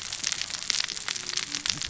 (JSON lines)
{"label": "biophony, cascading saw", "recorder": "SoundTrap 600 or HydroMoth"}